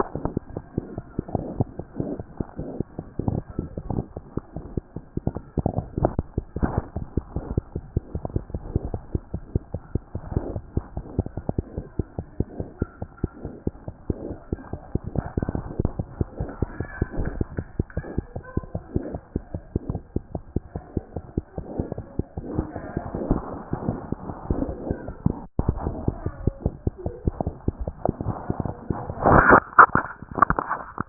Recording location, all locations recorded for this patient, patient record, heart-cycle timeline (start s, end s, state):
mitral valve (MV)
aortic valve (AV)+mitral valve (MV)
#Age: Infant
#Sex: Female
#Height: nan
#Weight: nan
#Pregnancy status: False
#Murmur: Absent
#Murmur locations: nan
#Most audible location: nan
#Systolic murmur timing: nan
#Systolic murmur shape: nan
#Systolic murmur grading: nan
#Systolic murmur pitch: nan
#Systolic murmur quality: nan
#Diastolic murmur timing: nan
#Diastolic murmur shape: nan
#Diastolic murmur grading: nan
#Diastolic murmur pitch: nan
#Diastolic murmur quality: nan
#Outcome: Abnormal
#Campaign: 2014 screening campaign
0.00	7.65	unannotated
7.65	7.75	diastole
7.75	7.82	S1
7.82	7.96	systole
7.96	8.03	S2
8.03	8.15	diastole
8.15	8.23	S1
8.23	8.36	systole
8.36	8.44	S2
8.44	8.55	diastole
8.55	8.62	S1
8.62	8.76	systole
8.76	8.82	S2
8.82	8.95	diastole
8.95	9.02	S1
9.02	9.15	systole
9.15	9.22	S2
9.22	9.34	diastole
9.34	9.42	S1
9.42	9.54	systole
9.54	9.62	S2
9.62	9.74	diastole
9.74	9.80	S1
9.80	9.94	systole
9.94	10.02	S2
10.02	10.15	diastole
10.15	31.09	unannotated